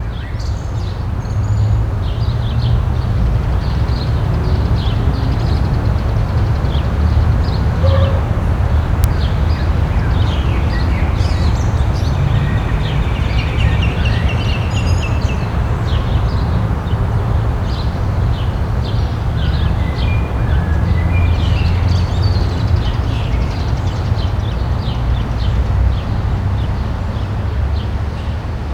Did someone stand up?
no